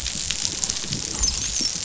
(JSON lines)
{"label": "biophony, dolphin", "recorder": "SoundTrap 500"}